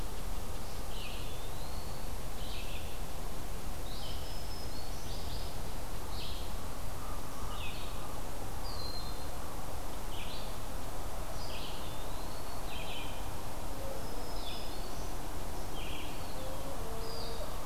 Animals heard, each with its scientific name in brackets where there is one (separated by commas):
Broad-winged Hawk (Buteo platypterus), Red-eyed Vireo (Vireo olivaceus), Black-throated Green Warbler (Setophaga virens), Eastern Wood-Pewee (Contopus virens)